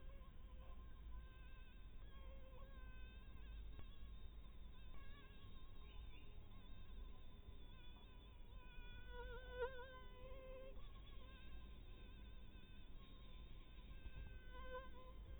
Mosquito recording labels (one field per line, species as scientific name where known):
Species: Anopheles harrisoni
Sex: female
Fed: blood-fed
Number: one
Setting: cup